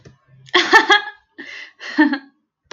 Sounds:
Laughter